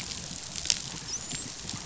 {"label": "biophony, dolphin", "recorder": "SoundTrap 500"}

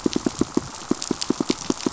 {"label": "biophony, pulse", "recorder": "SoundTrap 500"}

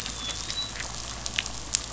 {"label": "biophony, dolphin", "recorder": "SoundTrap 500"}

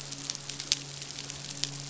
{"label": "biophony, midshipman", "recorder": "SoundTrap 500"}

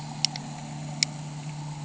{"label": "anthrophony, boat engine", "recorder": "HydroMoth"}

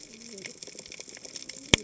{"label": "biophony, cascading saw", "recorder": "HydroMoth"}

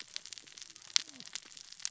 {"label": "biophony, cascading saw", "recorder": "SoundTrap 600 or HydroMoth"}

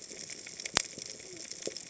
{"label": "biophony", "recorder": "HydroMoth"}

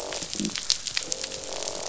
{"label": "biophony, croak", "recorder": "SoundTrap 500"}
{"label": "biophony", "recorder": "SoundTrap 500"}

